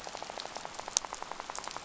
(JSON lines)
{"label": "biophony, rattle", "recorder": "SoundTrap 500"}